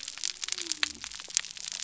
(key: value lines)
label: biophony
recorder: SoundTrap 300